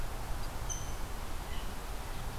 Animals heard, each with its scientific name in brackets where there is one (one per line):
Rose-breasted Grosbeak (Pheucticus ludovicianus)